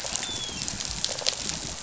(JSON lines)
{"label": "biophony, rattle response", "recorder": "SoundTrap 500"}
{"label": "biophony, dolphin", "recorder": "SoundTrap 500"}